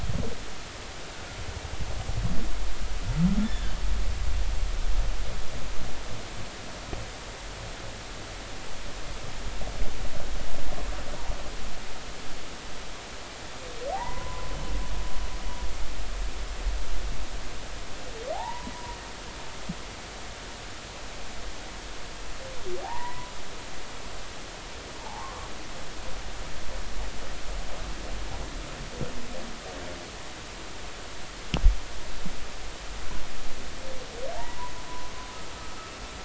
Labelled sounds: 3.4	3.7	humpback whale, 1.5 to 3.6 kHz
13.9	14.5	humpback whale, 0.80 to 2.0 kHz
18.3	18.7	humpback whale, 0.80 to 1.0 kHz
22.8	23.3	humpback whale, 0.80 to 2.1 kHz
25.0	25.3	humpback whale, 0.80 to 1.1 kHz

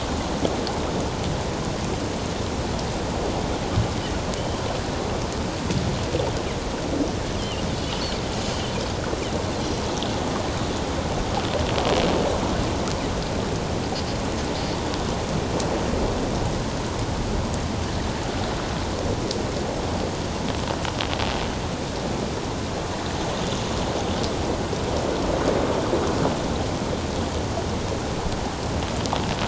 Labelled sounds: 4.4	4.6	Pacific white-sided dolphin, 2.9 to 3.2 kHz
7.4	7.6	Pacific white-sided dolphin, 2.7 to 3.5 kHz

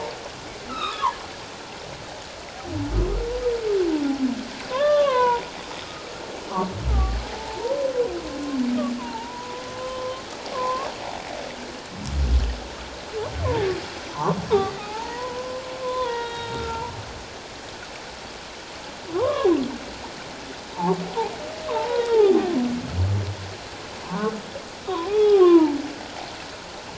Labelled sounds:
4.7	5.4	humpback whale, 0.88 to 3.8 kHz
6.9	7.9	humpback whale, 0.78 to 1.3 kHz
9.0	10.9	humpback whale, 0.78 to 1.2 kHz
14.1	14.4	humpback whale, 0.78 to 1.2 kHz
14.8	16.8	humpback whale, 0.81 to 3.8 kHz
19.1	19.5	humpback whale, 0.78 to 1.4 kHz
21.7	22.6	humpback whale, 0.78 to 3.7 kHz
24.0	24.4	humpback whale, 0.88 to 1.3 kHz
24.8	25.8	humpback whale, 0.78 to 3.4 kHz

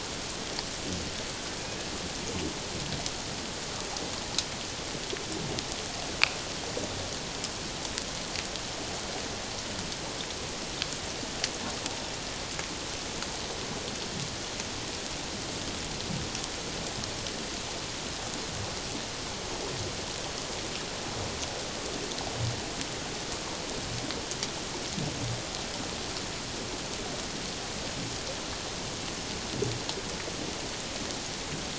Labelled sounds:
1.6	1.9	killer whale, Bigg's (transient), 2.4 to 2.6 kHz

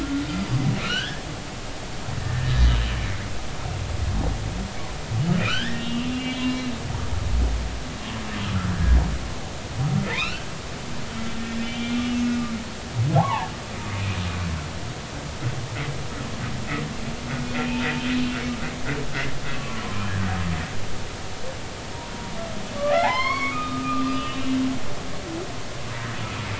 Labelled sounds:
0.0	1.2	humpback whale, 1.2 to 3.6 kHz
2.2	2.7	humpback whale, 1.7 to 4.2 kHz
5.4	6.6	humpback whale, 0.96 to 3.6 kHz
10.1	10.5	humpback whale, 0.86 to 4.6 kHz
11.4	12.0	humpback whale, 1.8 to 3.2 kHz
13.2	13.5	humpback whale, 0.80 to 1.2 kHz
19.5	20.3	humpback whale, 0.96 to 1.8 kHz
22.8	24.6	humpback whale, 0.80 to 5.4 kHz

